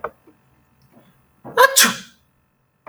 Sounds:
Sneeze